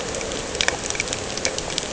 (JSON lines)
{"label": "anthrophony, boat engine", "recorder": "HydroMoth"}